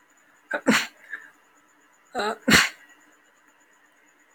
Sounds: Sneeze